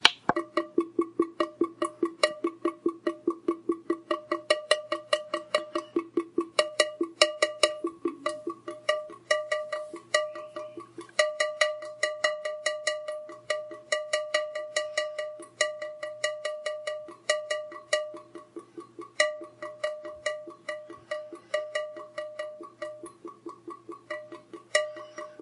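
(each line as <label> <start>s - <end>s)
Water droplets continuously fall onto a metal surface, producing rhythmic dripping and splashing sounds. 0.0s - 25.4s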